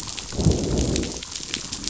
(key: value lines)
label: biophony, growl
recorder: SoundTrap 500